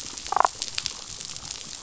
{"label": "biophony, damselfish", "recorder": "SoundTrap 500"}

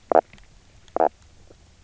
{"label": "biophony, knock croak", "recorder": "SoundTrap 300"}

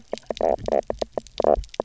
{"label": "biophony, knock croak", "recorder": "SoundTrap 300"}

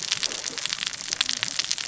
{"label": "biophony, cascading saw", "recorder": "SoundTrap 600 or HydroMoth"}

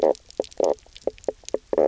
{"label": "biophony, knock croak", "recorder": "SoundTrap 300"}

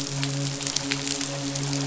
{"label": "biophony, midshipman", "recorder": "SoundTrap 500"}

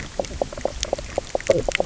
{"label": "biophony, knock croak", "recorder": "SoundTrap 300"}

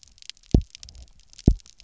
{"label": "biophony, double pulse", "recorder": "SoundTrap 300"}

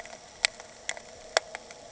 {"label": "anthrophony, boat engine", "recorder": "HydroMoth"}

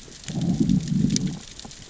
{"label": "biophony, growl", "recorder": "SoundTrap 600 or HydroMoth"}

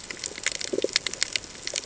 {"label": "ambient", "recorder": "HydroMoth"}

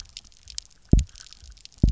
{"label": "biophony, double pulse", "recorder": "SoundTrap 300"}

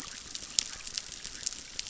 {"label": "biophony, chorus", "recorder": "SoundTrap 600"}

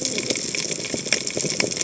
{"label": "biophony, cascading saw", "recorder": "HydroMoth"}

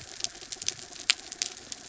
{"label": "anthrophony, mechanical", "recorder": "SoundTrap 300"}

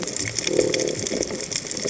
{"label": "biophony", "recorder": "HydroMoth"}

